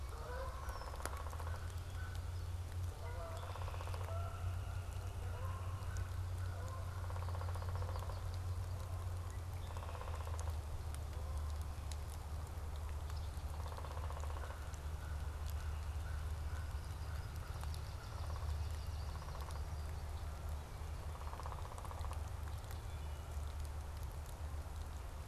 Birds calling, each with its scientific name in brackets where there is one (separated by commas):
Downy Woodpecker (Dryobates pubescens), American Crow (Corvus brachyrhynchos), Canada Goose (Branta canadensis), Yellow-rumped Warbler (Setophaga coronata)